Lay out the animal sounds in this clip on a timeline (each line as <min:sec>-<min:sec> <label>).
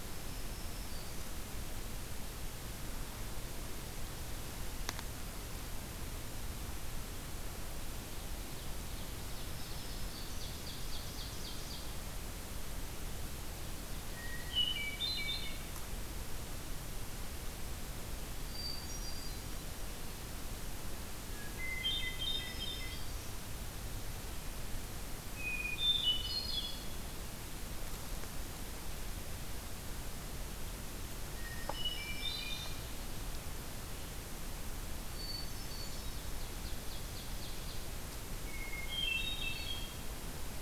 0:00.0-0:01.4 Black-throated Green Warbler (Setophaga virens)
0:08.2-0:11.9 Ovenbird (Seiurus aurocapilla)
0:09.3-0:10.7 Black-throated Green Warbler (Setophaga virens)
0:13.5-0:15.4 Ovenbird (Seiurus aurocapilla)
0:14.1-0:15.7 Hermit Thrush (Catharus guttatus)
0:18.4-0:19.7 Hermit Thrush (Catharus guttatus)
0:21.2-0:23.2 Hermit Thrush (Catharus guttatus)
0:22.0-0:23.5 Black-throated Green Warbler (Setophaga virens)
0:25.3-0:27.2 Hermit Thrush (Catharus guttatus)
0:31.3-0:33.0 Hermit Thrush (Catharus guttatus)
0:35.0-0:36.3 Hermit Thrush (Catharus guttatus)
0:35.7-0:38.0 Ovenbird (Seiurus aurocapilla)
0:38.3-0:40.3 Hermit Thrush (Catharus guttatus)